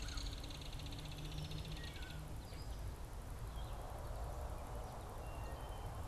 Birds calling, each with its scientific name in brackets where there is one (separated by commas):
American Crow (Corvus brachyrhynchos), unidentified bird, Wood Thrush (Hylocichla mustelina), Belted Kingfisher (Megaceryle alcyon)